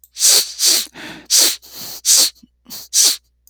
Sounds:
Sniff